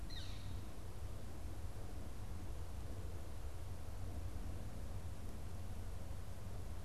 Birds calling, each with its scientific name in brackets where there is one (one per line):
Northern Flicker (Colaptes auratus)